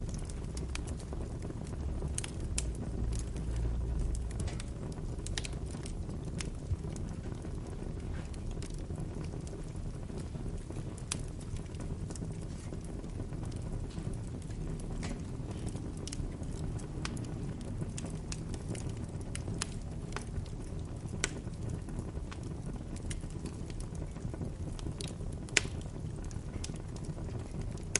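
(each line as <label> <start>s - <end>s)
Wood fire burning evenly. 0.0s - 28.0s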